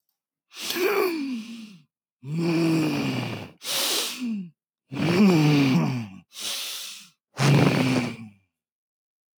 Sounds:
Sniff